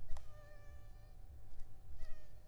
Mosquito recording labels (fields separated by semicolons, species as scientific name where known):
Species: Anopheles arabiensis; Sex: female; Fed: unfed; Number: one; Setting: cup